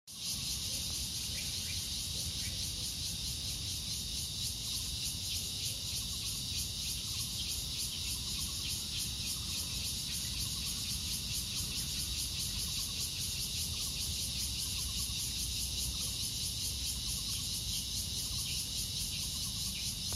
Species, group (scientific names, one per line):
Cryptotympana takasagona
Cicadidae